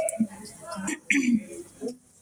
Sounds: Throat clearing